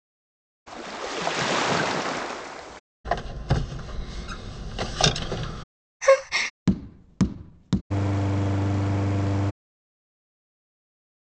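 At 0.7 seconds, waves are heard. Then, at 3.0 seconds, there is squeaking. Next, at 6.0 seconds, someone gasps. Later, at 6.7 seconds, tapping is audible. Finally, at 7.9 seconds, an engine idles.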